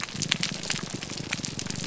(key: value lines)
label: biophony
recorder: SoundTrap 300